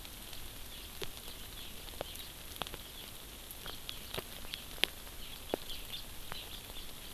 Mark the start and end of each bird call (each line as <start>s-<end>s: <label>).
5.3s-5.4s: House Finch (Haemorhous mexicanus)
5.7s-6.1s: House Finch (Haemorhous mexicanus)
6.8s-6.9s: House Finch (Haemorhous mexicanus)